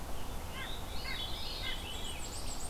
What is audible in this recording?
Red-eyed Vireo, White-breasted Nuthatch, Veery, Black-and-white Warbler, Black-throated Green Warbler